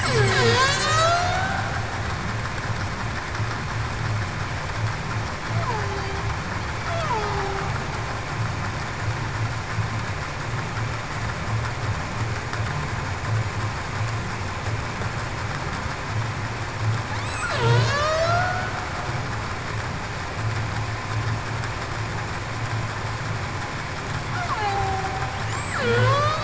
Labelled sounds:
0.0	1.6	killer whale, Bigg's (transient), 0.42 to 7.9 kHz
5.7	6.0	killer whale, Bigg's (transient), 0.38 to 0.49 kHz
17.3	18.8	killer whale, Bigg's (transient), 1.1 to 7.9 kHz
24.4	25.1	killer whale, Bigg's (transient), 0.73 to 1.3 kHz
25.8	26.4	killer whale, Bigg's (transient), 0.42 to 4.5 kHz

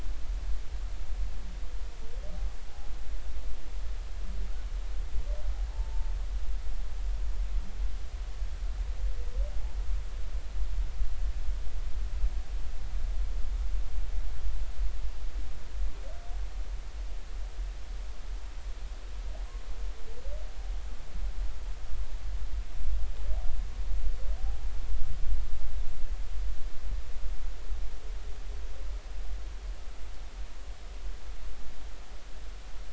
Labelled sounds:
5.7	6.1	humpback whale, 0.83 to 1.0 kHz

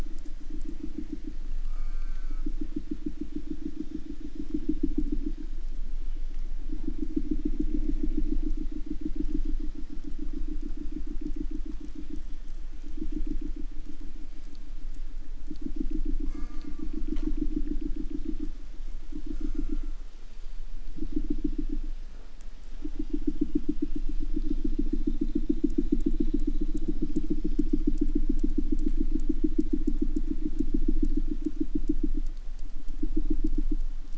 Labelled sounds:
1.6	2.5	killer whale, southern resident, J pod, call S04, 0.59 to 8.0 kHz
16.2	16.9	killer whale, southern resident, J pod, call S04, 0.51 to 8.0 kHz
17.1	17.3	killer whale, 0.32 to 8.0 kHz
19.3	20.1	killer whale, southern resident, J pod, call S04, 0.46 to 8.0 kHz

